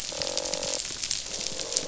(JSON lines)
{"label": "biophony, croak", "recorder": "SoundTrap 500"}